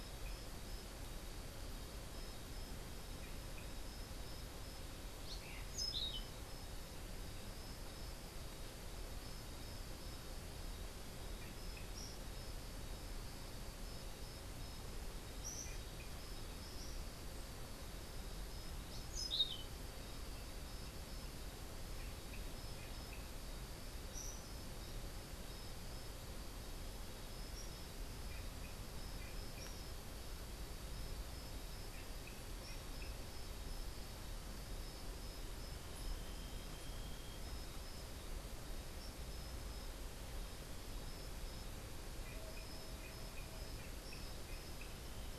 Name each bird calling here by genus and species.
Catharus aurantiirostris, Tyrannus melancholicus